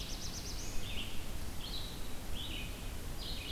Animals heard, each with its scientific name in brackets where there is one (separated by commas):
Red-eyed Vireo (Vireo olivaceus), Black-throated Blue Warbler (Setophaga caerulescens)